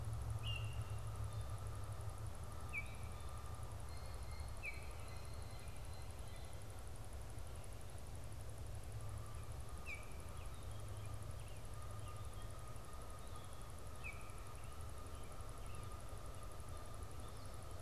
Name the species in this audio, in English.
Baltimore Oriole, Blue Jay, Canada Goose